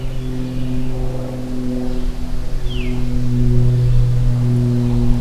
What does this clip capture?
Wood Thrush, Veery